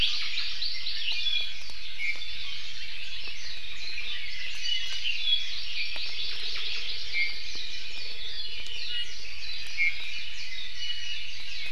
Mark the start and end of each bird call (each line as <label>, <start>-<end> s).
Red-billed Leiothrix (Leiothrix lutea), 0.0-0.5 s
Hawaii Amakihi (Chlorodrepanis virens), 0.1-1.3 s
Iiwi (Drepanis coccinea), 1.0-1.6 s
Iiwi (Drepanis coccinea), 2.0-2.2 s
Hawaii Creeper (Loxops mana), 2.3-3.3 s
Warbling White-eye (Zosterops japonicus), 3.3-4.0 s
Red-billed Leiothrix (Leiothrix lutea), 3.3-5.5 s
Iiwi (Drepanis coccinea), 4.6-5.5 s
Hawaii Amakihi (Chlorodrepanis virens), 5.5-7.4 s
Iiwi (Drepanis coccinea), 7.1-7.3 s
Warbling White-eye (Zosterops japonicus), 7.4-11.7 s
Iiwi (Drepanis coccinea), 8.4-9.2 s
Iiwi (Drepanis coccinea), 9.7-10.4 s
Iiwi (Drepanis coccinea), 10.7-11.2 s